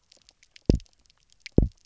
{"label": "biophony, double pulse", "recorder": "SoundTrap 300"}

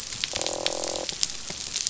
{"label": "biophony, croak", "recorder": "SoundTrap 500"}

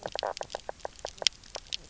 {"label": "biophony, knock croak", "recorder": "SoundTrap 300"}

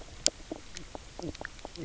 {"label": "biophony, knock croak", "recorder": "SoundTrap 300"}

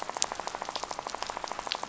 {"label": "biophony, rattle", "recorder": "SoundTrap 500"}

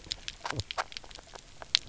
{"label": "biophony, knock croak", "recorder": "SoundTrap 300"}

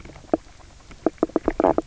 {"label": "biophony, knock croak", "recorder": "SoundTrap 300"}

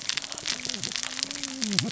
{"label": "biophony, cascading saw", "recorder": "SoundTrap 600 or HydroMoth"}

